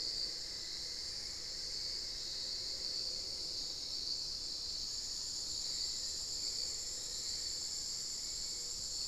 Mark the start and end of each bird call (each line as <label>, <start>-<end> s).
Cinnamon-throated Woodcreeper (Dendrexetastes rufigula), 0.0-8.9 s
Hauxwell's Thrush (Turdus hauxwelli), 0.0-9.1 s